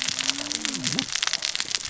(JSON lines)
{"label": "biophony, cascading saw", "recorder": "SoundTrap 600 or HydroMoth"}